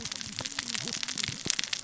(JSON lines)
{"label": "biophony, cascading saw", "recorder": "SoundTrap 600 or HydroMoth"}